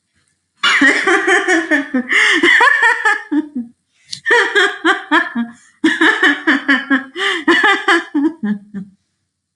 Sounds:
Laughter